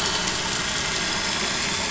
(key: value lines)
label: anthrophony, boat engine
recorder: SoundTrap 500